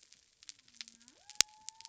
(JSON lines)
{"label": "biophony", "recorder": "SoundTrap 300"}